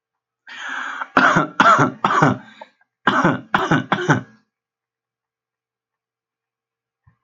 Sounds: Cough